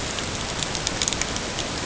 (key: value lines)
label: ambient
recorder: HydroMoth